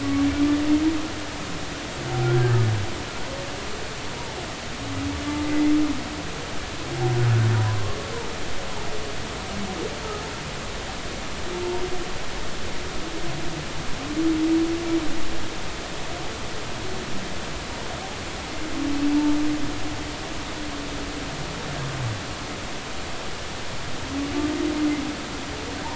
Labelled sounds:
5.4	5.7	humpback whale, 1.9 to 2.2 kHz
7.5	7.8	humpback whale, 0.93 to 1.1 kHz

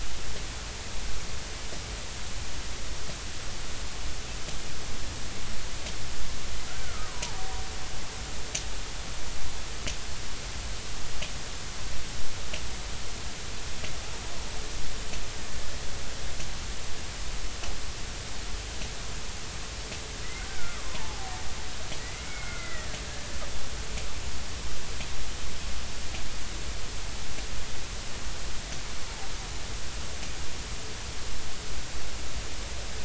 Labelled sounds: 6.7	7.5	killer whale, Bigg's (transient), 0.80 to 1.6 kHz
20.5	21.3	killer whale, Bigg's (transient), 0.80 to 1.6 kHz
22.0	23.0	killer whale, Bigg's (transient), 1.3 to 2.3 kHz

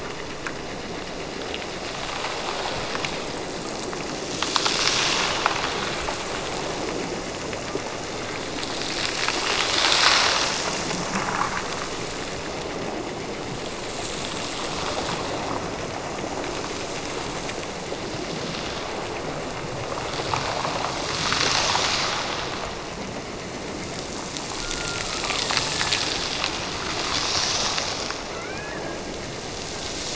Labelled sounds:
24.6	25.9	killer whale, Bigg's (transient), Gulf of Alaska transient, 0.66 to 1.6 kHz
28.2	29.8	killer whale, Bigg's (transient), Gulf of Alaska transient, 1.2 to 2.7 kHz

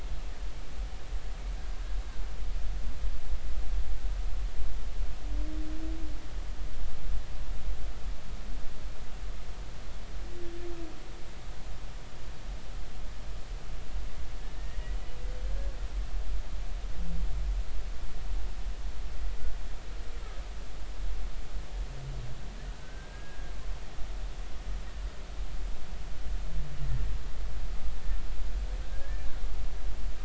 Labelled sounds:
14.4	14.8	humpback whale, 1.7 to 1.9 kHz
22.7	23.5	humpback whale, 1.4 to 1.7 kHz
28.8	29.3	humpback whale, 1.5 to 1.8 kHz

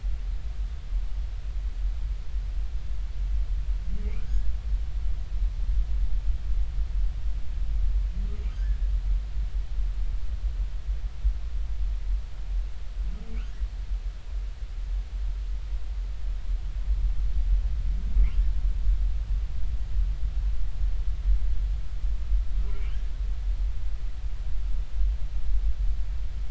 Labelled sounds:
4.2	4.5	humpback whale, 1.4 to 1.8 kHz
22.7	22.9	humpback whale, 2.1 to 2.4 kHz

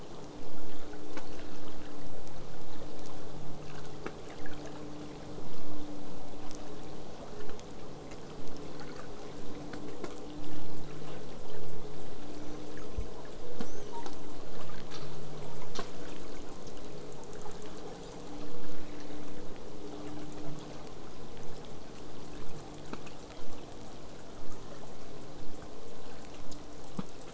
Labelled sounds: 12.3	13.1	killer whale, southern resident, whistle, 5.3 to 8.0 kHz
13.6	14.2	killer whale, southern resident, L pod, call S02iii, 0.66 to 6.6 kHz
21.4	27.3	killer whale, southern resident, 5.7 to 8.0 kHz

